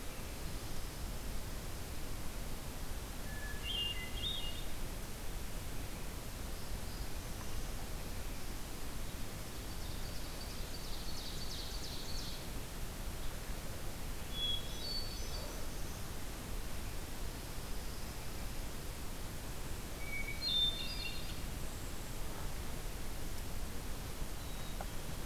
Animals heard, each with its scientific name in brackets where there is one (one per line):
Black-throated Blue Warbler (Setophaga caerulescens)
Hermit Thrush (Catharus guttatus)
Ovenbird (Seiurus aurocapilla)
Black-capped Chickadee (Poecile atricapillus)